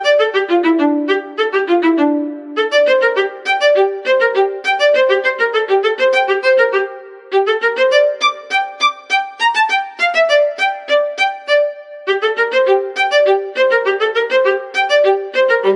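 0.0s A violin solo plays with rapid changes between loud and soft phases. 15.8s

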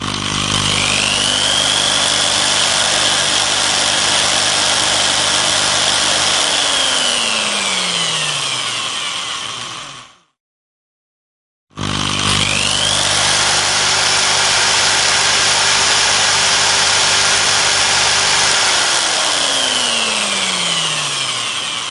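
0.0s A super loud dryer roars in a quiet room. 10.1s
11.7s A super loud dryer roars in a quiet room. 21.9s

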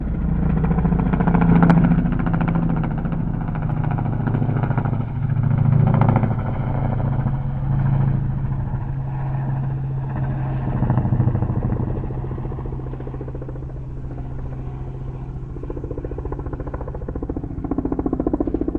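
0.0s A helicopter flies overhead with a loud, rhythmic chop that gradually fades as it moves away. 18.8s

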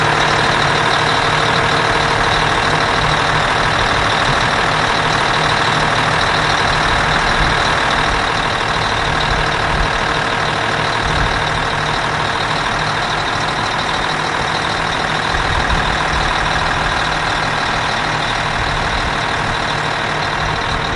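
0.0s A truck engine hums. 21.0s

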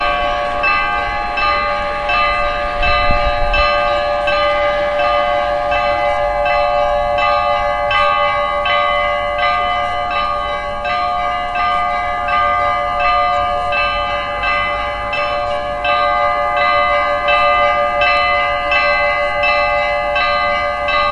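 0.0s A church bell rings rhythmically. 21.1s

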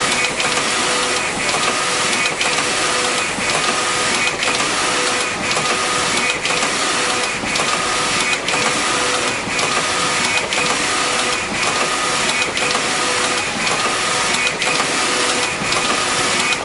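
0.0s Background noise from an indoor factory environment. 16.6s
0.0s Sewing machines run continuously. 16.6s

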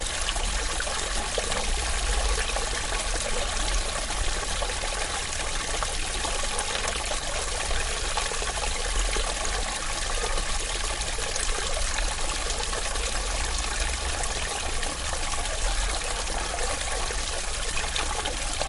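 0.0s Water flowing. 18.7s

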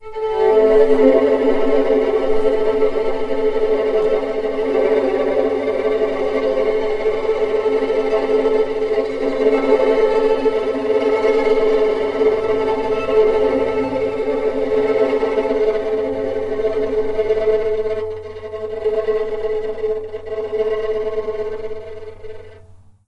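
0.0s A trembling, wavering violin sound gradually fades away. 23.1s

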